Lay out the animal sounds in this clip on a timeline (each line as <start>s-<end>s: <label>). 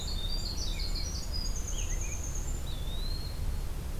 0.0s-2.8s: Winter Wren (Troglodytes hiemalis)
0.5s-2.2s: American Robin (Turdus migratorius)
2.5s-3.4s: Eastern Wood-Pewee (Contopus virens)